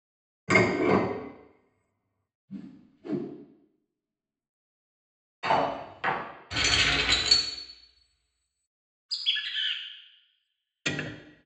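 At 0.47 seconds, dishes can be heard. Then, at 2.47 seconds, there is whooshing. After that, at 5.43 seconds, the sound of cutlery is heard. Afterwards, at 6.5 seconds, keys jangle. Following that, at 9.09 seconds, bird vocalization is audible. Finally, at 10.85 seconds, ticking can be heard.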